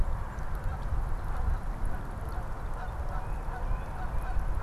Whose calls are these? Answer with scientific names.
Branta canadensis, Baeolophus bicolor